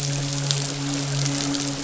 {"label": "biophony, midshipman", "recorder": "SoundTrap 500"}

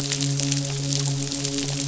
{"label": "biophony, midshipman", "recorder": "SoundTrap 500"}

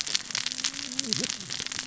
{"label": "biophony, cascading saw", "recorder": "SoundTrap 600 or HydroMoth"}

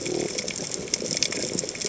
{"label": "biophony", "recorder": "HydroMoth"}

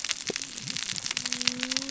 {"label": "biophony, cascading saw", "recorder": "SoundTrap 600 or HydroMoth"}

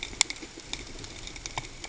{"label": "ambient", "recorder": "HydroMoth"}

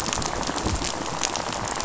{"label": "biophony, rattle", "recorder": "SoundTrap 500"}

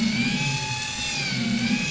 {"label": "anthrophony, boat engine", "recorder": "SoundTrap 500"}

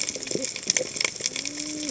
{"label": "biophony, cascading saw", "recorder": "HydroMoth"}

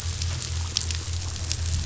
{"label": "anthrophony, boat engine", "recorder": "SoundTrap 500"}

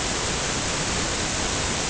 {"label": "ambient", "recorder": "HydroMoth"}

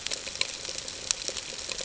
{"label": "ambient", "recorder": "HydroMoth"}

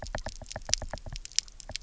{"label": "biophony, knock", "recorder": "SoundTrap 300"}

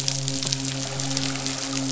{"label": "biophony, midshipman", "recorder": "SoundTrap 500"}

